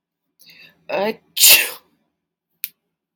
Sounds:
Sneeze